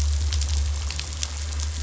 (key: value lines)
label: anthrophony, boat engine
recorder: SoundTrap 500